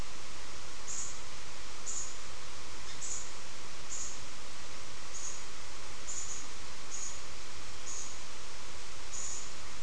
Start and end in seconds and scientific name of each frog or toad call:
none